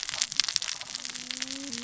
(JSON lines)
{"label": "biophony, cascading saw", "recorder": "SoundTrap 600 or HydroMoth"}